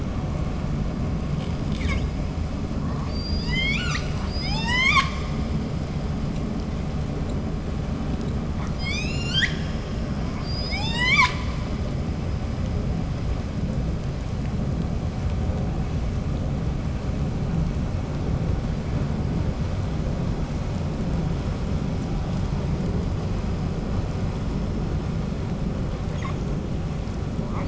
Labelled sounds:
1.6	2.2	killer whale, 0.78 to 8.0 kHz
2.7	6.4	killer whale, 0.44 to 8.0 kHz
8.4	12.3	killer whale, 0.26 to 8.0 kHz
26.0	26.4	killer whale, 0.70 to 8.0 kHz
27.4	27.6	killer whale, 0.38 to 8.0 kHz

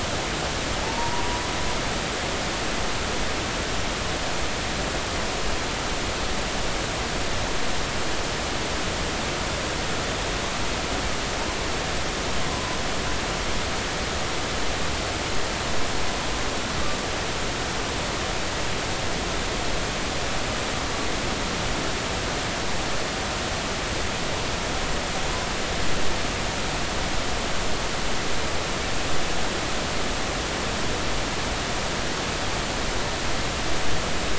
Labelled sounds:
0.8	1.4	humpback whale, 0.83 to 1.1 kHz
12.5	12.8	humpback whale, 0.96 to 1.1 kHz

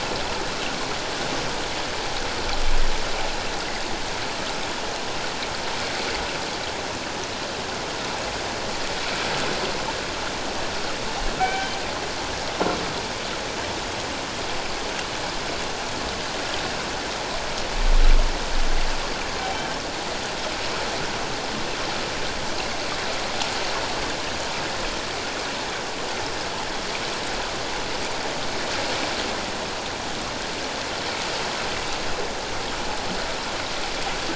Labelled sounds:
11.4	11.8	killer whale, northern resident, G clan, call N24ii, 1.5 to 3.2 kHz

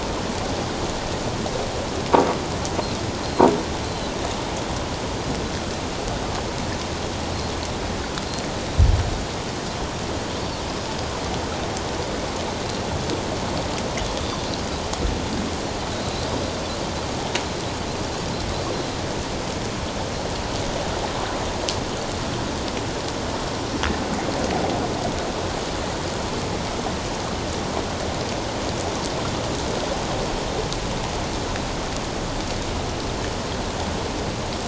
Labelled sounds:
3.2	3.5	Pacific white-sided dolphin, 4.0 to 4.3 kHz

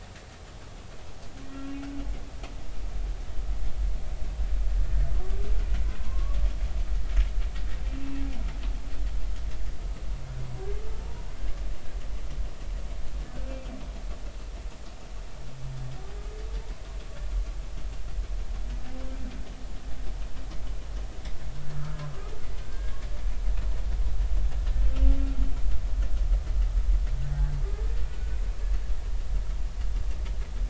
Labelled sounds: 6.0	6.4	humpback whale, 0.96 to 1.2 kHz
22.6	23.0	humpback whale, 1.5 to 1.7 kHz
28.1	28.4	humpback whale, 1.4 to 1.6 kHz

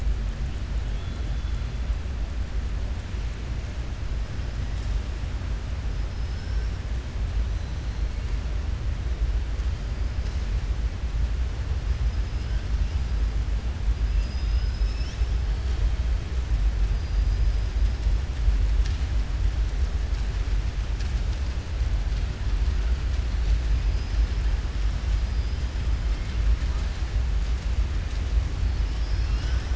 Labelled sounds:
0.9	1.6	killer whale, southern resident, 2.7 to 4.2 kHz
16.9	17.4	killer whale, southern resident, 4.0 to 5.7 kHz
28.7	29.7	killer whale, southern resident, 1.4 to 6.4 kHz

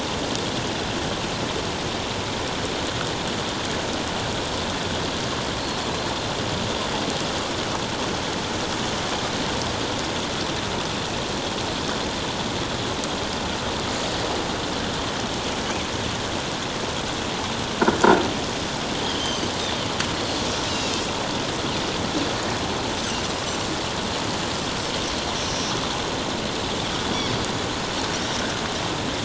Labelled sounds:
19.0	19.5	Pacific white-sided dolphin, 2.9 to 6.3 kHz
20.7	21.0	Pacific white-sided dolphin, 2.6 to 5.3 kHz
25.5	25.7	Pacific white-sided dolphin, 5.5 to 5.8 kHz

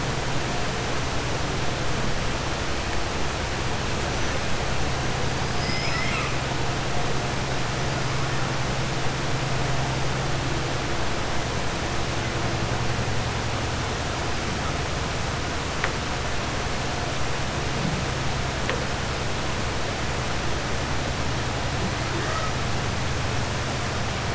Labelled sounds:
5.5	6.3	killer whale, 1.2 to 5.3 kHz

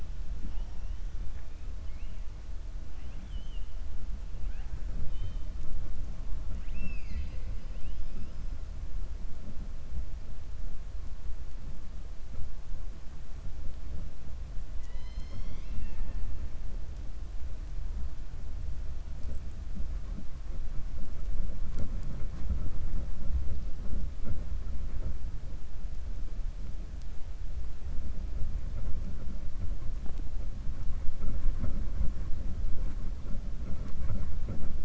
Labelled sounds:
2.9	3.7	killer whale, 2.0 to 3.5 kHz
6.4	7.3	killer whale, 0.21 to 6.4 kHz
7.5	8.4	killer whale, 2.5 to 5.2 kHz
14.7	16.2	killer whale, 0.19 to 7.8 kHz

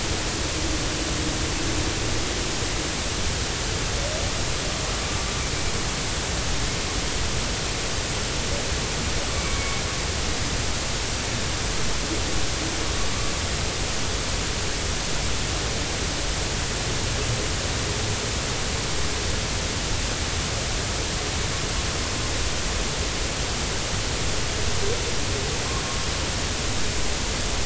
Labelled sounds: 9.3	9.7	humpback whale, 2.2 to 2.3 kHz

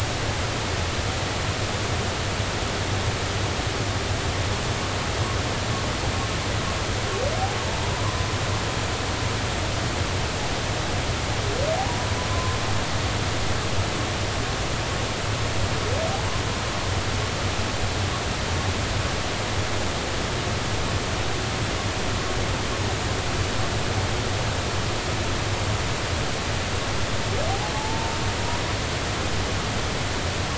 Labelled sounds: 7.9	8.2	humpback whale, 0.93 to 1.2 kHz
12.3	12.6	humpback whale, 0.99 to 1.1 kHz
27.7	28.2	humpback whale, 0.80 to 1.0 kHz

